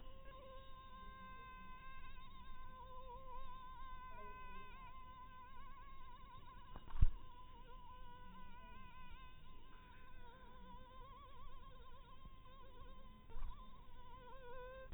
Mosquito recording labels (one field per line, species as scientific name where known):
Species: mosquito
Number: one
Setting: cup